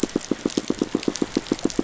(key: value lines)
label: biophony, pulse
recorder: SoundTrap 500